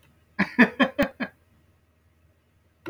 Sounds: Laughter